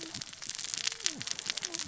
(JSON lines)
{"label": "biophony, cascading saw", "recorder": "SoundTrap 600 or HydroMoth"}